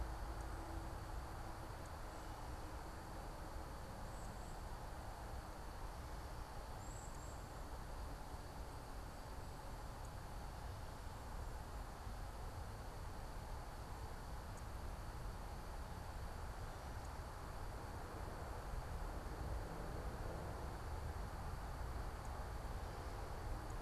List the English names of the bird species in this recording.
unidentified bird